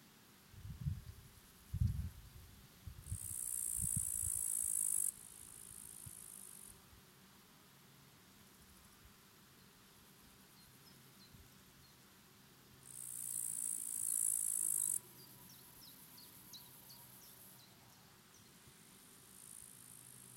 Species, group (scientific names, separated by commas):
Tettigonia cantans, Orthoptera